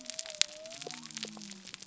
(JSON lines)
{"label": "biophony", "recorder": "SoundTrap 300"}